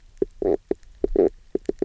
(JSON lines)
{"label": "biophony, knock croak", "recorder": "SoundTrap 300"}